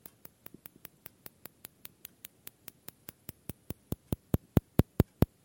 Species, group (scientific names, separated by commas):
Cyrtaspis scutata, Orthoptera